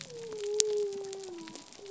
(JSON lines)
{"label": "biophony", "recorder": "SoundTrap 300"}